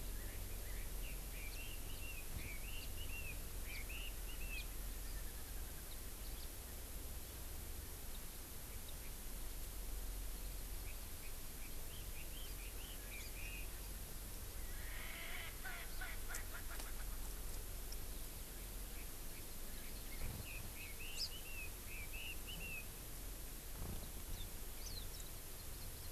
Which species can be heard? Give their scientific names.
Leiothrix lutea, Pternistis erckelii, Chlorodrepanis virens